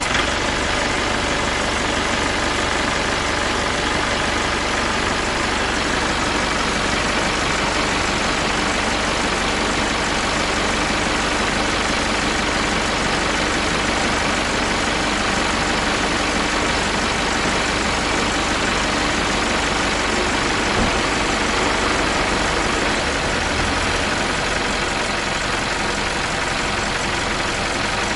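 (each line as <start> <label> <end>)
0.0 A truck engine makes a loud, repetitive metallic sound while driving. 28.2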